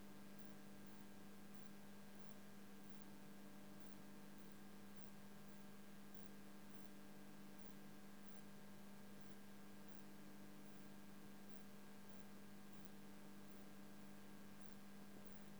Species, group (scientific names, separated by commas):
Poecilimon veluchianus, Orthoptera